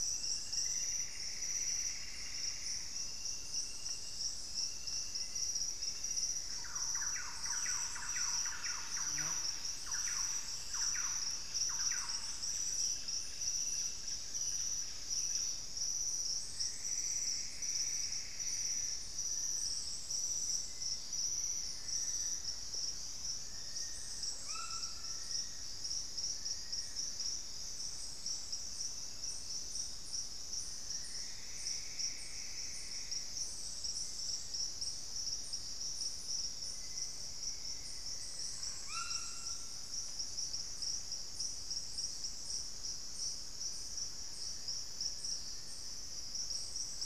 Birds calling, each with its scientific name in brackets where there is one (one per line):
White-throated Toucan (Ramphastos tucanus)
Plumbeous Antbird (Myrmelastes hyperythrus)
Long-billed Woodcreeper (Nasica longirostris)
Buff-breasted Wren (Cantorchilus leucotis)
unidentified bird
Thrush-like Wren (Campylorhynchus turdinus)
Black-faced Antthrush (Formicarius analis)